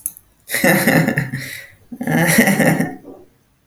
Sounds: Laughter